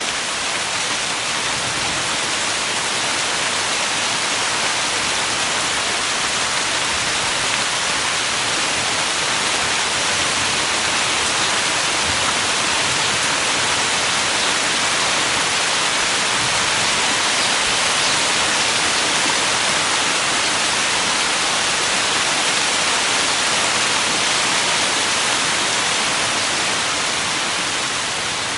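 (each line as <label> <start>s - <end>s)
Heavy rain and thunderstorm sounds. 0.0s - 28.6s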